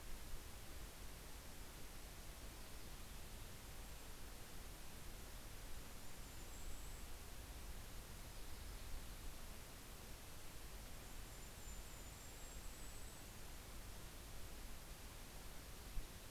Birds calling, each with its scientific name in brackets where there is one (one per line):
Golden-crowned Kinglet (Regulus satrapa)
Yellow-rumped Warbler (Setophaga coronata)